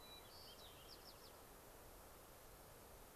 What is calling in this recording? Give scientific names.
Zonotrichia leucophrys